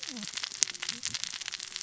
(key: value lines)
label: biophony, cascading saw
recorder: SoundTrap 600 or HydroMoth